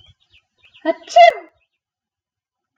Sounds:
Sneeze